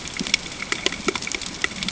{"label": "ambient", "recorder": "HydroMoth"}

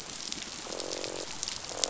{"label": "biophony, croak", "recorder": "SoundTrap 500"}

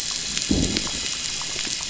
{"label": "biophony, growl", "recorder": "SoundTrap 500"}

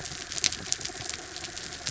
{"label": "anthrophony, mechanical", "recorder": "SoundTrap 300"}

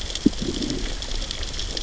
{"label": "biophony, growl", "recorder": "SoundTrap 600 or HydroMoth"}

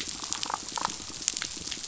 {"label": "biophony", "recorder": "SoundTrap 500"}
{"label": "biophony, damselfish", "recorder": "SoundTrap 500"}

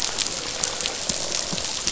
{"label": "biophony, croak", "recorder": "SoundTrap 500"}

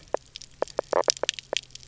{"label": "biophony, knock croak", "recorder": "SoundTrap 300"}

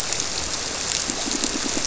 {"label": "biophony, squirrelfish (Holocentrus)", "recorder": "SoundTrap 300"}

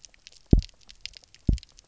{"label": "biophony, double pulse", "recorder": "SoundTrap 300"}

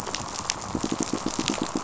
{"label": "biophony, pulse", "recorder": "SoundTrap 500"}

